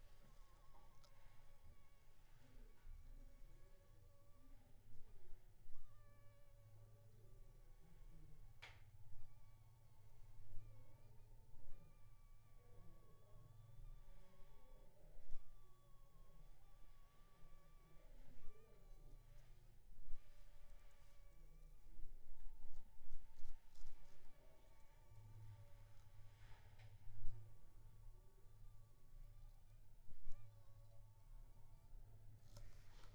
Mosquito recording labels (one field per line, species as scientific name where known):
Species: Anopheles funestus s.s.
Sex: female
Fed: unfed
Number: one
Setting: cup